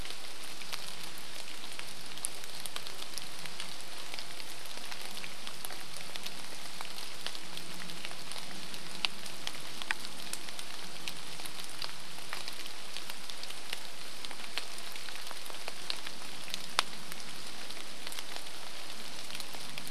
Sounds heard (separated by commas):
airplane, rain, chainsaw